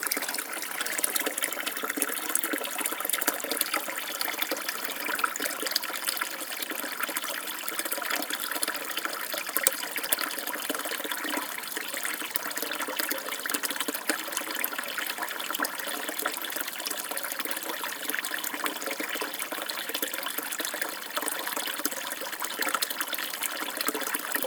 Are there any animals making noises?
no